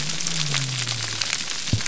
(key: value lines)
label: biophony
recorder: SoundTrap 300